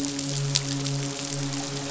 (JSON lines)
{"label": "biophony, midshipman", "recorder": "SoundTrap 500"}